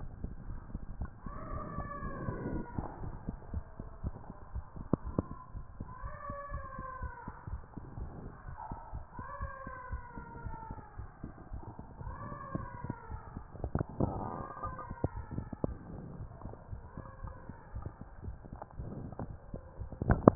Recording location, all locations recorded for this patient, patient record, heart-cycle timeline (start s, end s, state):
mitral valve (MV)
aortic valve (AV)+pulmonary valve (PV)+tricuspid valve (TV)+mitral valve (MV)
#Age: Child
#Sex: Male
#Height: 131.0 cm
#Weight: 32.0 kg
#Pregnancy status: False
#Murmur: Absent
#Murmur locations: nan
#Most audible location: nan
#Systolic murmur timing: nan
#Systolic murmur shape: nan
#Systolic murmur grading: nan
#Systolic murmur pitch: nan
#Systolic murmur quality: nan
#Diastolic murmur timing: nan
#Diastolic murmur shape: nan
#Diastolic murmur grading: nan
#Diastolic murmur pitch: nan
#Diastolic murmur quality: nan
#Outcome: Normal
#Campaign: 2015 screening campaign
0.00	5.36	unannotated
5.36	5.54	diastole
5.54	5.64	S1
5.64	5.78	systole
5.78	5.88	S2
5.88	6.02	diastole
6.02	6.14	S1
6.14	6.28	systole
6.28	6.38	S2
6.38	6.50	diastole
6.50	6.64	S1
6.64	6.78	systole
6.78	6.86	S2
6.86	7.01	diastole
7.01	7.14	S1
7.14	7.26	systole
7.26	7.34	S2
7.34	7.48	diastole
7.48	7.62	S1
7.62	7.74	systole
7.74	7.84	S2
7.84	7.97	diastole
7.97	8.08	S1
8.08	8.23	systole
8.23	8.32	S2
8.32	8.48	diastole
8.48	8.58	S1
8.58	8.70	systole
8.70	8.78	S2
8.78	8.94	diastole
8.94	9.06	S1
9.06	9.18	systole
9.18	9.26	S2
9.26	9.39	diastole
9.39	9.50	S1
9.50	9.64	systole
9.64	9.74	S2
9.74	9.89	diastole
9.89	10.01	S1
10.01	10.15	systole
10.15	10.26	S2
10.26	10.44	diastole
10.44	10.58	S1
10.58	10.68	systole
10.68	10.80	S2
10.80	10.98	diastole
10.98	11.08	S1
11.08	11.23	systole
11.23	11.34	S2
11.34	11.52	diastole
11.52	11.62	S1
11.62	11.74	systole
11.74	11.86	S2
11.86	12.04	diastole
12.04	12.20	S1
12.20	12.30	systole
12.30	12.38	S2
12.38	12.54	diastole
12.54	12.68	S1
12.68	12.84	systole
12.84	12.94	S2
12.94	13.10	diastole
13.10	13.22	S1
13.22	13.34	systole
13.34	13.44	S2
13.44	13.60	diastole
13.60	20.35	unannotated